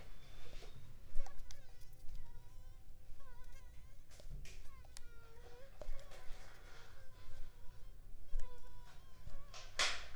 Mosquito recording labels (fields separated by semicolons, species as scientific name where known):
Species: Mansonia uniformis; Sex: female; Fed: unfed; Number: one; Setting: cup